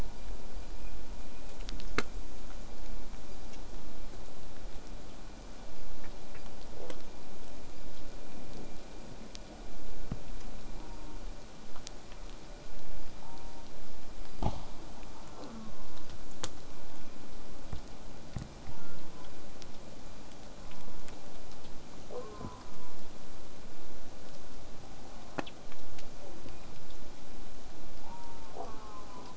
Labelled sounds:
10.7	11.2	killer whale, southern resident, J pod, call S04, 0.19 to 1.1 kHz
13.2	13.7	killer whale, southern resident, J pod, call S04, 0.53 to 1.1 kHz
15.3	16.1	killer whale, southern resident, J pod, call S04, 0.49 to 1.5 kHz
18.7	19.3	killer whale, southern resident, J pod, call S04, 0.72 to 1.5 kHz
20.6	21.1	killer whale, southern resident, J pod, call S04, 0.72 to 1.2 kHz
22.1	22.9	killer whale, southern resident, J pod, call S04, 0.08 to 1.6 kHz
25.1	25.6	killer whale, southern resident, J pod, call S04, 0.15 to 1.4 kHz
26.2	26.6	killer whale, southern resident, J pod, call S04, 0.15 to 1.4 kHz
28.0	29.3	killer whale, southern resident, J pod, call S04, 0.23 to 1.7 kHz

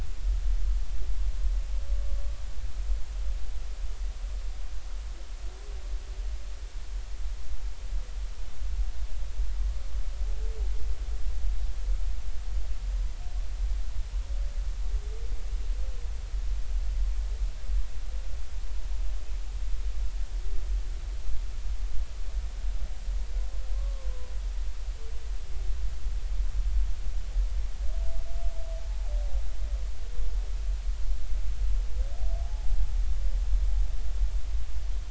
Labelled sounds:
23.7	24.1	humpback whale, 0.99 to 1.2 kHz
32.4	32.7	humpback whale, 0.80 to 0.90 kHz

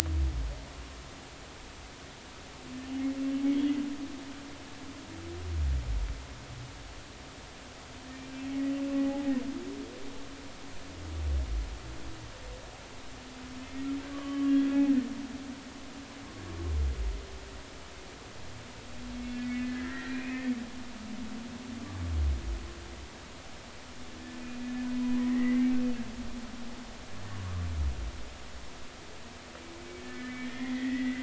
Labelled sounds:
9.0	9.2	humpback whale, 0.80 to 0.93 kHz
14.1	15.1	humpback whale, 1.0 to 3.5 kHz
19.4	20.5	humpback whale, 1.3 to 2.6 kHz
24.9	25.7	humpback whale, 0.93 to 2.1 kHz
30.0	31.2	humpback whale, 1.7 to 2.2 kHz

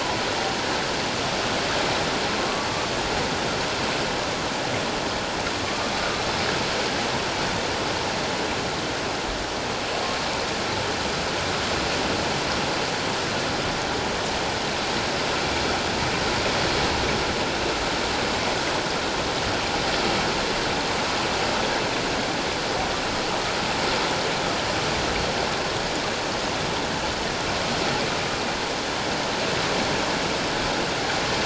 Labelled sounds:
2.4	2.7	humpback whale, 1.0 to 1.2 kHz
5.6	5.9	humpback whale, 1.0 to 1.2 kHz

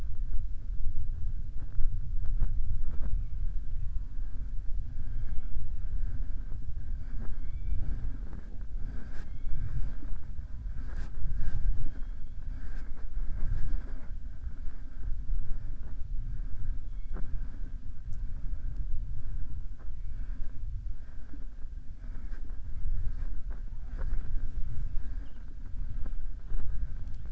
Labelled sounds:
11.7	12.3	killer whale, southern resident, 2.7 to 4.3 kHz

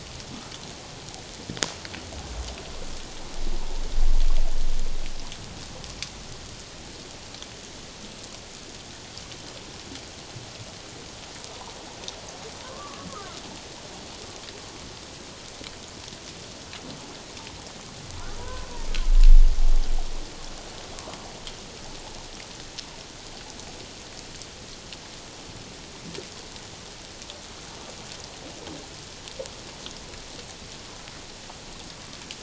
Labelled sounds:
12.6	13.3	humpback whale, 0.97 to 1.3 kHz
18.4	18.7	humpback whale, 0.94 to 1.1 kHz

